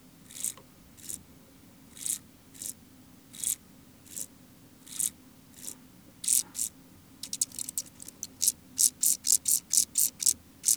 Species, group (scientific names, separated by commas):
Chorthippus brunneus, Orthoptera